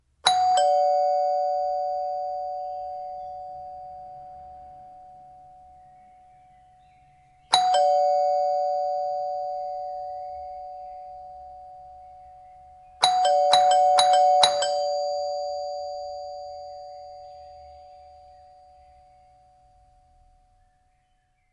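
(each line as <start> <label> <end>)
0.0 A doorbell rings loudly and then slowly fades out. 4.6
7.5 A doorbell rings loudly and then slowly fades out. 11.7
13.0 A doorbell rings loudly and repeatedly. 15.3
14.4 A doorbell rings loudly and then slowly fades out. 17.2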